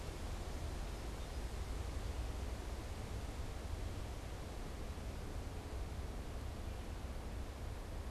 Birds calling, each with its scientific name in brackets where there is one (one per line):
Song Sparrow (Melospiza melodia)